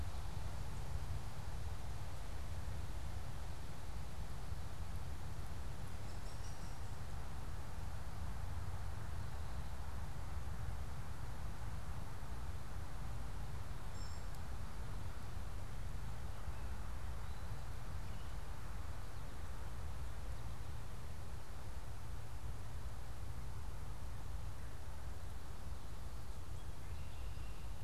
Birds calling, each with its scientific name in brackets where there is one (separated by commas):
Hairy Woodpecker (Dryobates villosus), unidentified bird